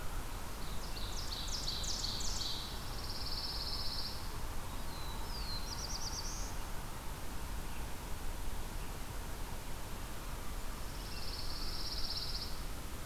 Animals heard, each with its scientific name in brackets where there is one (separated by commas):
Black-throated Blue Warbler (Setophaga caerulescens), Ovenbird (Seiurus aurocapilla), Pine Warbler (Setophaga pinus)